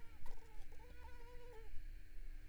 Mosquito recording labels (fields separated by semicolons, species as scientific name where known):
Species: Culex pipiens complex; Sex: female; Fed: unfed; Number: one; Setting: cup